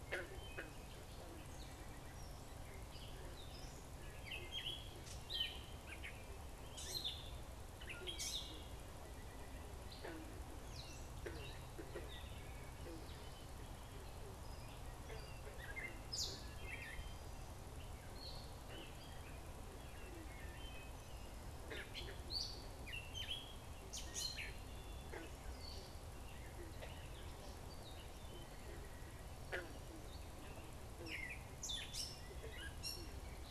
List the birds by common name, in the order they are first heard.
Gray Catbird, Wood Thrush